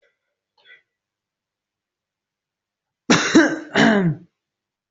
{"expert_labels": [{"quality": "ok", "cough_type": "unknown", "dyspnea": false, "wheezing": false, "stridor": false, "choking": false, "congestion": false, "nothing": true, "diagnosis": "healthy cough", "severity": "pseudocough/healthy cough"}], "gender": "female", "respiratory_condition": false, "fever_muscle_pain": false, "status": "healthy"}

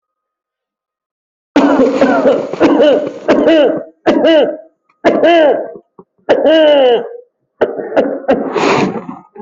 {"expert_labels": [{"quality": "ok", "cough_type": "dry", "dyspnea": true, "wheezing": false, "stridor": false, "choking": false, "congestion": true, "nothing": false, "diagnosis": "COVID-19", "severity": "severe"}], "age": 30, "gender": "male", "respiratory_condition": false, "fever_muscle_pain": false, "status": "symptomatic"}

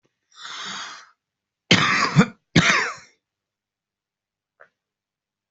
{"expert_labels": [{"quality": "good", "cough_type": "wet", "dyspnea": false, "wheezing": false, "stridor": false, "choking": false, "congestion": false, "nothing": true, "diagnosis": "lower respiratory tract infection", "severity": "mild"}], "age": 30, "gender": "male", "respiratory_condition": false, "fever_muscle_pain": false, "status": "symptomatic"}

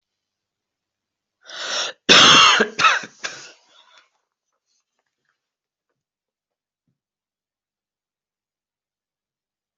{"expert_labels": [{"quality": "good", "cough_type": "dry", "dyspnea": true, "wheezing": false, "stridor": false, "choking": false, "congestion": false, "nothing": false, "diagnosis": "COVID-19", "severity": "mild"}], "age": 23, "gender": "male", "respiratory_condition": false, "fever_muscle_pain": false, "status": "COVID-19"}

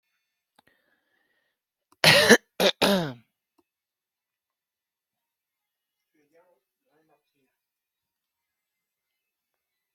{"expert_labels": [{"quality": "good", "cough_type": "dry", "dyspnea": false, "wheezing": false, "stridor": false, "choking": false, "congestion": false, "nothing": true, "diagnosis": "healthy cough", "severity": "pseudocough/healthy cough"}], "age": 55, "gender": "female", "respiratory_condition": false, "fever_muscle_pain": false, "status": "healthy"}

